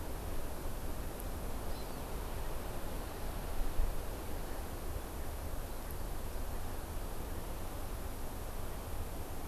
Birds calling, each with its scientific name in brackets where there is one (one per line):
Hawaii Amakihi (Chlorodrepanis virens)